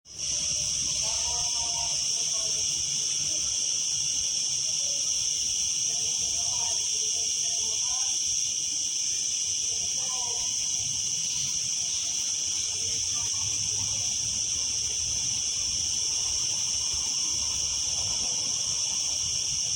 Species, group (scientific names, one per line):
Cicada barbara
Cicadidae